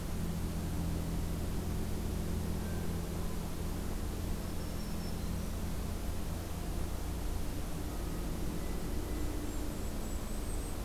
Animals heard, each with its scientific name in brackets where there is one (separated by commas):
Golden-crowned Kinglet (Regulus satrapa), Black-throated Green Warbler (Setophaga virens)